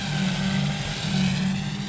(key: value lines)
label: anthrophony, boat engine
recorder: SoundTrap 500